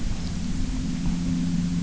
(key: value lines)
label: anthrophony, boat engine
recorder: SoundTrap 300